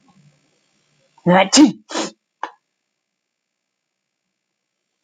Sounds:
Sneeze